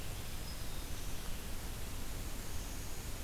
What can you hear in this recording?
Black-throated Green Warbler, unidentified call